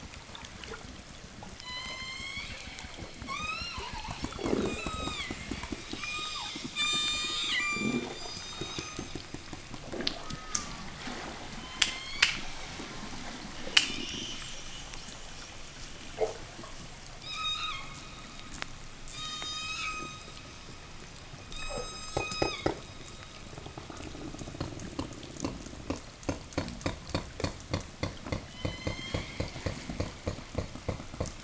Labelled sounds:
1.5	9.2	killer whale, southern resident, 0 to 8.0 kHz
10.0	10.9	killer whale, southern resident, 0 to 3.8 kHz
11.5	12.5	killer whale, southern resident, 0 to 8.0 kHz
13.5	14.6	killer whale, southern resident, 0 to 8.0 kHz
17.0	20.7	killer whale, southern resident, 0 to 8.0 kHz
21.1	23.3	killer whale, southern resident, 0.32 to 8.0 kHz
28.3	29.6	killer whale, southern resident, 0 to 8.0 kHz

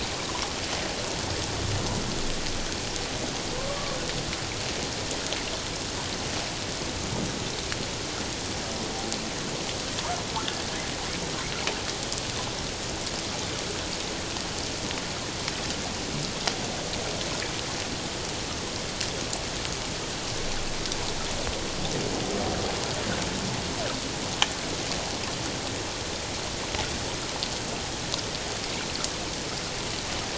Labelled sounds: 3.6	4.0	humpback whale, 1.0 to 1.2 kHz

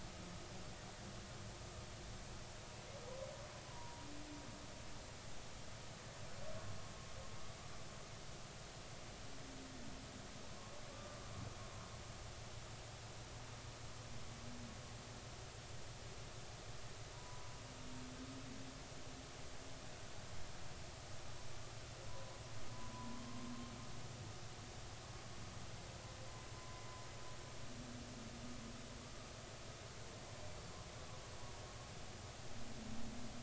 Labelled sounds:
3.6	4.1	humpback whale, 0.90 to 1.1 kHz
10.9	11.2	humpback whale, 1.1 to 1.2 kHz
17.1	17.6	humpback whale, 0.93 to 1.0 kHz
22.1	22.3	humpback whale, 0.93 to 1.1 kHz
23.2	23.5	humpback whale, 1.0 to 1.1 kHz
26.6	26.8	humpback whale, 0.96 to 1.2 kHz

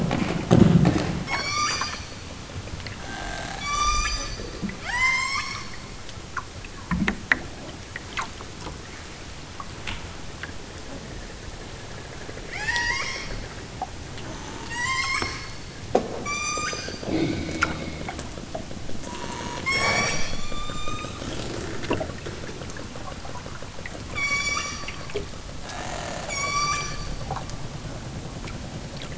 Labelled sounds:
1.3	1.9	killer whale, southern Alaska resident, 0.73 to 8.0 kHz
3.6	4.4	killer whale, southern Alaska resident, 0.83 to 8.0 kHz
4.9	5.6	killer whale, southern Alaska resident, 0.60 to 8.0 kHz
12.5	13.4	killer whale, southern Alaska resident, 0.64 to 8.0 kHz
14.6	15.5	killer whale, southern Alaska resident, 0.69 to 8.0 kHz
16.2	16.9	killer whale, southern Alaska resident, 0.83 to 8.0 kHz
19.6	21.2	killer whale, southern Alaska resident, 0.28 to 8.0 kHz
24.1	24.8	killer whale, southern Alaska resident, 0.69 to 8.0 kHz
26.2	26.9	killer whale, southern Alaska resident, 0.55 to 8.0 kHz

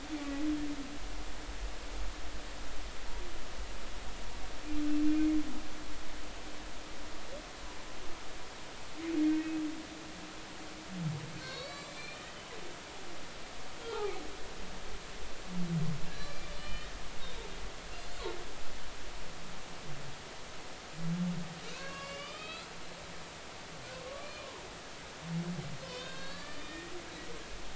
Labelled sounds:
9.2	9.6	humpback whale, 2.4 to 2.6 kHz
11.4	12.5	humpback whale, 2.0 to 7.7 kHz
13.8	14.2	humpback whale, 0.80 to 1.4 kHz
16.1	16.9	humpback whale, 1.6 to 4.2 kHz
21.7	22.7	humpback whale, 0.99 to 5.2 kHz
23.9	24.6	humpback whale, 0.90 to 2.5 kHz
25.8	27.0	humpback whale, 0.96 to 5.0 kHz

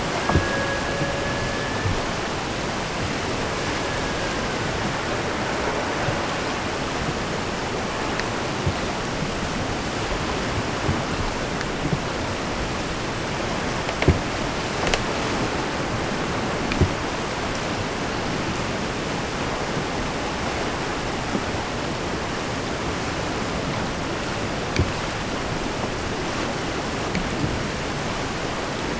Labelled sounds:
0.0	2.2	killer whale, Bigg's (transient), AT1 transient, 0.35 to 1.8 kHz
3.2	4.9	killer whale, Bigg's (transient), AT1 transient, 0.67 to 2.6 kHz

